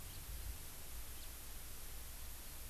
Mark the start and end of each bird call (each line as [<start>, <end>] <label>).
[0.11, 0.21] House Finch (Haemorhous mexicanus)
[1.21, 1.31] House Finch (Haemorhous mexicanus)